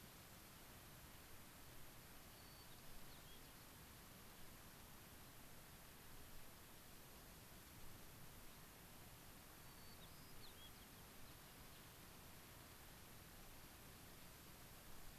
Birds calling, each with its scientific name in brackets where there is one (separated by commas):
Gray-crowned Rosy-Finch (Leucosticte tephrocotis), White-crowned Sparrow (Zonotrichia leucophrys)